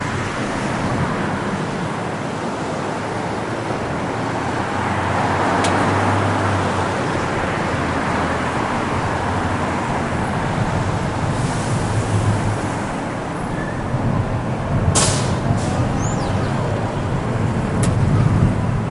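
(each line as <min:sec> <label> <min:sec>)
0:00.0 Traffic noise in a busy city center during rush hour. 0:18.9
0:04.3 A lorry passes by loudly. 0:10.2
0:11.1 A bus stops with its air brake. 0:14.7
0:14.7 A bus door opening for passengers. 0:16.7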